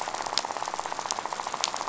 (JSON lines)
{"label": "biophony, rattle", "recorder": "SoundTrap 500"}